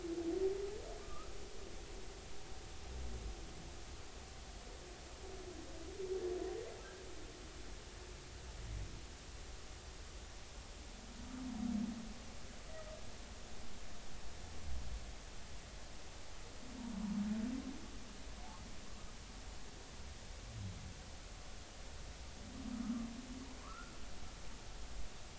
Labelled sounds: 1.0	1.3	humpback whale, 1.1 to 1.4 kHz
23.6	23.9	humpback whale, 0.96 to 1.5 kHz

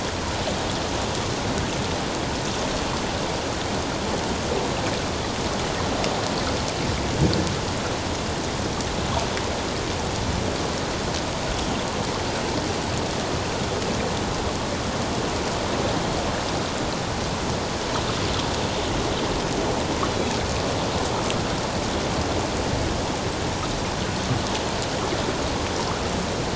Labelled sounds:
20.1	20.4	Pacific white-sided dolphin, 3.8 to 4.1 kHz

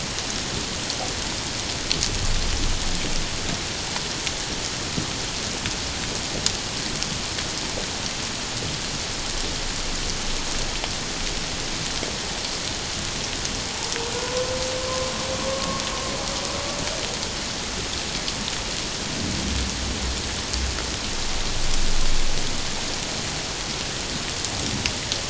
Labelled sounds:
14.1	14.5	humpback whale, 0.94 to 1.1 kHz
15.4	15.8	humpback whale, 1.0 to 1.2 kHz

